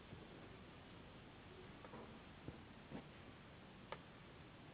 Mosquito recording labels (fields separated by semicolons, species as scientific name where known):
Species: Anopheles gambiae s.s.; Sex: female; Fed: unfed; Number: one; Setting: insect culture